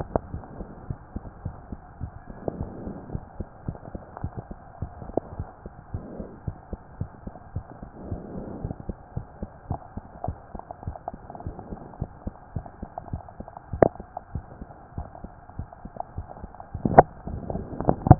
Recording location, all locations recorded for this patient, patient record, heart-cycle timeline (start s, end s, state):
mitral valve (MV)
aortic valve (AV)+pulmonary valve (PV)+tricuspid valve (TV)+mitral valve (MV)
#Age: Child
#Sex: Female
#Height: 121.0 cm
#Weight: 24.8 kg
#Pregnancy status: False
#Murmur: Absent
#Murmur locations: nan
#Most audible location: nan
#Systolic murmur timing: nan
#Systolic murmur shape: nan
#Systolic murmur grading: nan
#Systolic murmur pitch: nan
#Systolic murmur quality: nan
#Diastolic murmur timing: nan
#Diastolic murmur shape: nan
#Diastolic murmur grading: nan
#Diastolic murmur pitch: nan
#Diastolic murmur quality: nan
#Outcome: Normal
#Campaign: 2015 screening campaign
0.00	0.30	unannotated
0.30	0.44	S1
0.44	0.56	systole
0.56	0.68	S2
0.68	0.88	diastole
0.88	0.98	S1
0.98	1.14	systole
1.14	1.24	S2
1.24	1.44	diastole
1.44	1.56	S1
1.56	1.70	systole
1.70	1.80	S2
1.80	2.02	diastole
2.02	2.12	S1
2.12	2.26	systole
2.26	2.34	S2
2.34	2.54	diastole
2.54	2.70	S1
2.70	2.80	systole
2.80	2.94	S2
2.94	3.12	diastole
3.12	3.24	S1
3.24	3.38	systole
3.38	3.46	S2
3.46	3.66	diastole
3.66	3.76	S1
3.76	3.92	systole
3.92	4.02	S2
4.02	4.22	diastole
4.22	4.32	S1
4.32	4.46	systole
4.46	4.56	S2
4.56	4.80	diastole
4.80	4.90	S1
4.90	5.04	systole
5.04	5.14	S2
5.14	5.36	diastole
5.36	5.48	S1
5.48	5.62	systole
5.62	5.70	S2
5.70	5.94	diastole
5.94	6.06	S1
6.06	6.18	systole
6.18	6.28	S2
6.28	6.46	diastole
6.46	6.56	S1
6.56	6.72	systole
6.72	6.78	S2
6.78	7.00	diastole
7.00	7.10	S1
7.10	7.26	systole
7.26	7.32	S2
7.32	7.54	diastole
7.54	7.64	S1
7.64	7.78	systole
7.78	7.86	S2
7.86	8.06	diastole
8.06	8.20	S1
8.20	8.32	systole
8.32	8.44	S2
8.44	8.62	diastole
8.62	8.74	S1
8.74	8.88	systole
8.88	8.96	S2
8.96	9.16	diastole
9.16	9.26	S1
9.26	9.38	systole
9.38	9.48	S2
9.48	9.68	diastole
9.68	9.80	S1
9.80	9.96	systole
9.96	10.02	S2
10.02	10.26	diastole
10.26	10.36	S1
10.36	10.50	systole
10.50	10.60	S2
10.60	10.86	diastole
10.86	10.96	S1
10.96	11.12	systole
11.12	11.20	S2
11.20	11.44	diastole
11.44	11.58	S1
11.58	11.68	systole
11.68	11.78	S2
11.78	12.02	diastole
12.02	12.12	S1
12.12	12.26	systole
12.26	12.34	S2
12.34	12.54	diastole
12.54	12.64	S1
12.64	12.78	systole
12.78	12.88	S2
12.88	18.19	unannotated